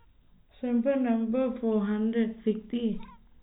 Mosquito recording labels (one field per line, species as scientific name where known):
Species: no mosquito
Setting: cup